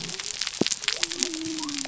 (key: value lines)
label: biophony
recorder: SoundTrap 300